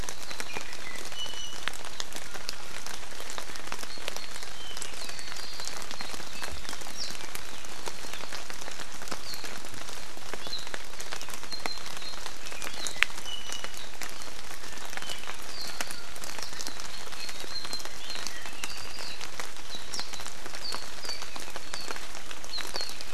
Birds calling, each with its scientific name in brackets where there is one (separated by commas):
Apapane (Himatione sanguinea), Warbling White-eye (Zosterops japonicus), Iiwi (Drepanis coccinea)